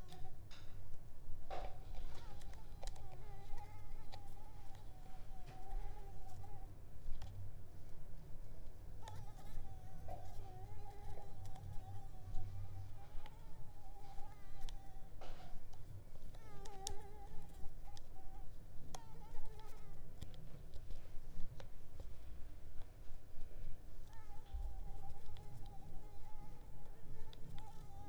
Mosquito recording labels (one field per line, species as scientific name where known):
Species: Mansonia africanus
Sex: female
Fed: unfed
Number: one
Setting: cup